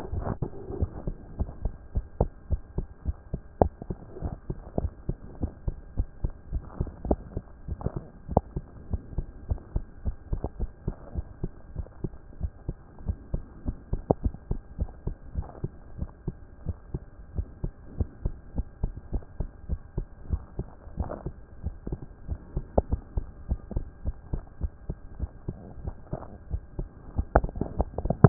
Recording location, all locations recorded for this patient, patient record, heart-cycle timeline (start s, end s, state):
tricuspid valve (TV)
pulmonary valve (PV)+tricuspid valve (TV)+mitral valve (MV)
#Age: Child
#Sex: Male
#Height: 123.0 cm
#Weight: 22.7 kg
#Pregnancy status: False
#Murmur: Absent
#Murmur locations: nan
#Most audible location: nan
#Systolic murmur timing: nan
#Systolic murmur shape: nan
#Systolic murmur grading: nan
#Systolic murmur pitch: nan
#Systolic murmur quality: nan
#Diastolic murmur timing: nan
#Diastolic murmur shape: nan
#Diastolic murmur grading: nan
#Diastolic murmur pitch: nan
#Diastolic murmur quality: nan
#Outcome: Normal
#Campaign: 2014 screening campaign
0.00	0.70	unannotated
0.70	0.78	diastole
0.78	0.90	S1
0.90	1.06	systole
1.06	1.16	S2
1.16	1.38	diastole
1.38	1.50	S1
1.50	1.62	systole
1.62	1.72	S2
1.72	1.94	diastole
1.94	2.06	S1
2.06	2.20	systole
2.20	2.30	S2
2.30	2.50	diastole
2.50	2.62	S1
2.62	2.76	systole
2.76	2.86	S2
2.86	3.06	diastole
3.06	3.16	S1
3.16	3.32	systole
3.32	3.42	S2
3.42	3.60	diastole
3.60	3.72	S1
3.72	3.88	systole
3.88	3.98	S2
3.98	4.22	diastole
4.22	4.34	S1
4.34	4.48	systole
4.48	4.56	S2
4.56	4.78	diastole
4.78	4.92	S1
4.92	5.08	systole
5.08	5.18	S2
5.18	5.40	diastole
5.40	5.52	S1
5.52	5.66	systole
5.66	5.76	S2
5.76	5.98	diastole
5.98	6.08	S1
6.08	6.22	systole
6.22	6.32	S2
6.32	6.52	diastole
6.52	6.64	S1
6.64	6.78	systole
6.78	6.88	S2
6.88	7.06	diastole
7.06	7.18	S1
7.18	7.34	systole
7.34	7.44	S2
7.44	7.68	diastole
7.68	7.78	S1
7.78	7.94	systole
7.94	8.04	S2
8.04	8.30	diastole
8.30	8.44	S1
8.44	8.54	systole
8.54	8.64	S2
8.64	8.90	diastole
8.90	9.02	S1
9.02	9.16	systole
9.16	9.26	S2
9.26	9.48	diastole
9.48	9.60	S1
9.60	9.74	systole
9.74	9.84	S2
9.84	10.04	diastole
10.04	28.29	unannotated